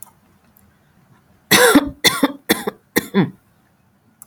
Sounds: Cough